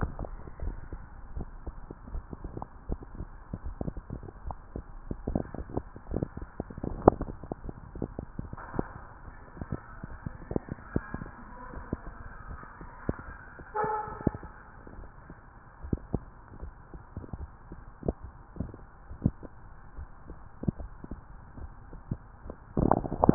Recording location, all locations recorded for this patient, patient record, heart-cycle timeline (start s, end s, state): tricuspid valve (TV)
aortic valve (AV)+pulmonary valve (PV)+tricuspid valve (TV)+mitral valve (MV)
#Age: nan
#Sex: Female
#Height: nan
#Weight: nan
#Pregnancy status: True
#Murmur: Absent
#Murmur locations: nan
#Most audible location: nan
#Systolic murmur timing: nan
#Systolic murmur shape: nan
#Systolic murmur grading: nan
#Systolic murmur pitch: nan
#Systolic murmur quality: nan
#Diastolic murmur timing: nan
#Diastolic murmur shape: nan
#Diastolic murmur grading: nan
#Diastolic murmur pitch: nan
#Diastolic murmur quality: nan
#Outcome: Normal
#Campaign: 2015 screening campaign
0.00	0.32	unannotated
0.32	0.60	diastole
0.60	0.76	S1
0.76	0.90	systole
0.90	1.02	S2
1.02	1.34	diastole
1.34	1.48	S1
1.48	1.64	systole
1.64	1.76	S2
1.76	2.08	diastole
2.08	2.24	S1
2.24	2.42	systole
2.42	2.52	S2
2.52	2.86	diastole
2.86	3.00	S1
3.00	3.18	systole
3.18	3.28	S2
3.28	3.62	diastole
3.62	3.78	S1
3.78	3.94	systole
3.94	4.04	S2
4.04	4.44	diastole
4.44	4.58	S1
4.58	4.73	systole
4.73	4.86	S2
4.86	5.24	diastole
5.24	5.42	S1
5.42	5.57	systole
5.57	5.72	S2
5.72	6.08	diastole
6.08	6.22	S1
6.22	6.38	systole
6.38	6.48	S2
6.48	6.84	diastole
6.84	7.02	S1
7.02	7.20	systole
7.20	7.36	S2
7.36	7.64	diastole
7.64	7.76	S1
7.76	7.94	systole
7.94	8.08	S2
8.08	8.40	diastole
8.40	8.54	S1
8.54	8.76	systole
8.76	8.90	S2
8.90	9.26	diastole
9.26	9.39	S1
9.39	9.58	systole
9.58	9.70	S2
9.70	10.04	diastole
10.04	10.20	S1
10.20	10.50	systole
10.50	10.62	S2
10.62	10.94	diastole
10.94	11.04	S1
11.04	11.22	systole
11.22	11.32	S2
11.32	11.74	diastole
11.74	11.86	S1
11.86	12.06	systole
12.06	12.16	S2
12.16	12.48	diastole
12.48	12.60	S1
12.60	12.80	systole
12.80	12.88	S2
12.88	13.26	diastole
13.26	13.36	S1
13.36	13.58	systole
13.58	13.66	S2
13.66	14.08	diastole
14.08	23.34	unannotated